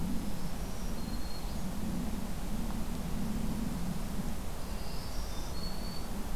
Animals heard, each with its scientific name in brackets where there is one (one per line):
Black-throated Green Warbler (Setophaga virens)